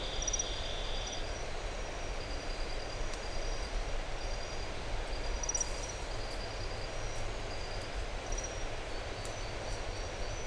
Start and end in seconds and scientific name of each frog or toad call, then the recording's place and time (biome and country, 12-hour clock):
none
Atlantic Forest, Brazil, 6:15pm